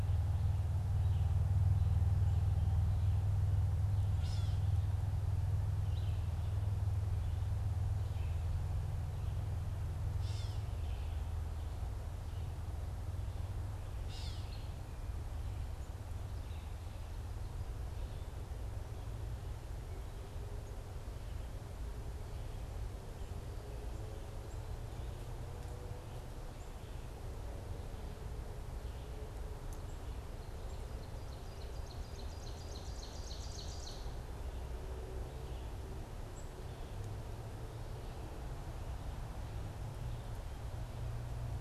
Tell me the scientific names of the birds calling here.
Vireo olivaceus, Dumetella carolinensis, Seiurus aurocapilla